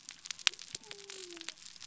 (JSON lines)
{"label": "biophony", "recorder": "SoundTrap 300"}